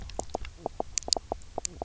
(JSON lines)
{"label": "biophony, knock croak", "recorder": "SoundTrap 300"}